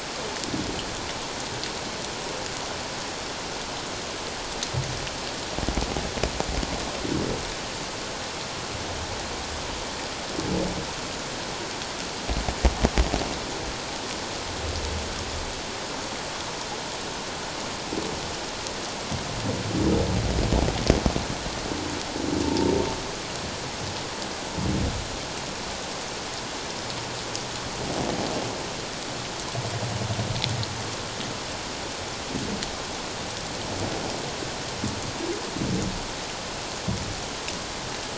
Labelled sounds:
22.4	22.7	humpback whale, 0.84 to 0.97 kHz

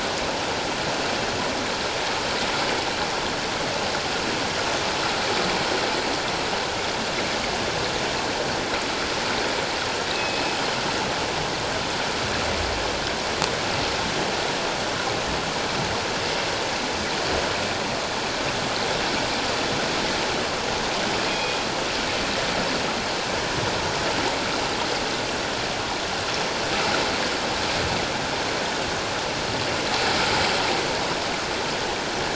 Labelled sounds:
10.1	10.7	killer whale, northern resident, G clan, call N24ii, 2.5 to 5.2 kHz
21.3	21.6	killer whale, northern resident, G clan, call N24ii, 2.3 to 3.4 kHz

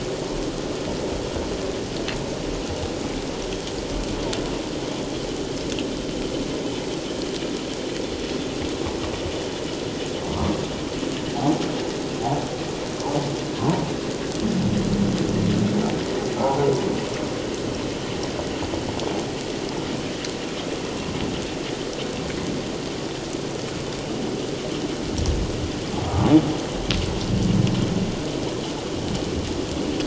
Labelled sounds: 10.3	10.6	humpback whale, 0.91 to 1.3 kHz
13.6	13.8	humpback whale, 0.81 to 1.1 kHz
26.0	26.4	humpback whale, 1.1 to 1.3 kHz

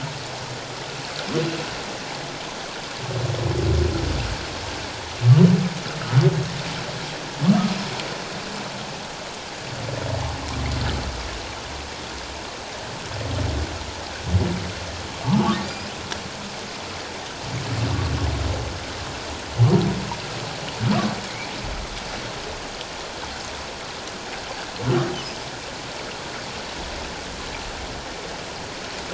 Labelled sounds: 15.2	15.9	humpback whale, 0.81 to 5.3 kHz

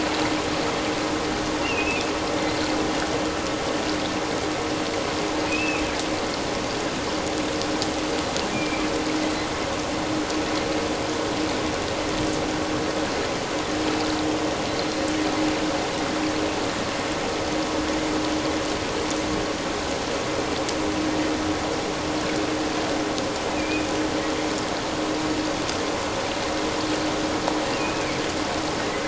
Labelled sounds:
1.6	2.0	killer whale, offshore, 2.3 to 2.9 kHz
5.5	5.8	killer whale, offshore, 2.3 to 2.7 kHz
8.5	8.9	killer whale, offshore, 2.2 to 2.5 kHz
23.5	23.9	killer whale, offshore, 2.3 to 2.6 kHz
27.8	28.0	killer whale, offshore, 2.4 to 2.6 kHz

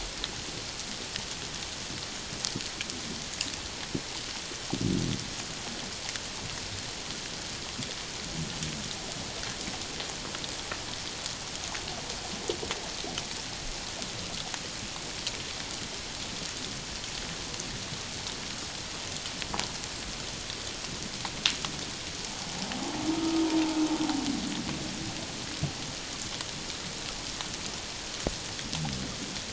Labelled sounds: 23.1	23.5	humpback whale, 1.2 to 1.3 kHz

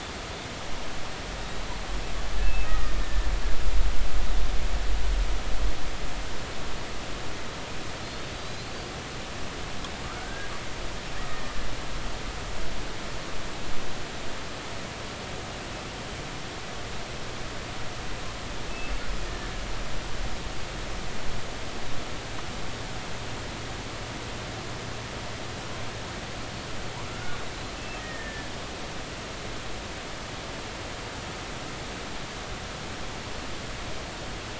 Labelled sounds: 2.4	3.3	killer whale, Bigg's (transient), 1.1 to 2.8 kHz
8.4	8.8	killer whale, Bigg's (transient), 3.9 to 4.7 kHz
10.1	10.5	killer whale, Bigg's (transient), 1.2 to 1.7 kHz
11.3	11.5	killer whale, Bigg's (transient), 1.8 to 1.9 kHz
27.1	28.5	killer whale, Bigg's (transient), 1.3 to 2.7 kHz

